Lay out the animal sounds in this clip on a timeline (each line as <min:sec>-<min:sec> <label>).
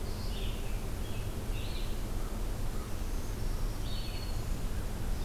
0:00.0-0:05.2 Red-eyed Vireo (Vireo olivaceus)
0:00.6-0:02.0 American Robin (Turdus migratorius)
0:02.9-0:04.7 Black-throated Green Warbler (Setophaga virens)